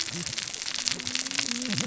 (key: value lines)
label: biophony, cascading saw
recorder: SoundTrap 600 or HydroMoth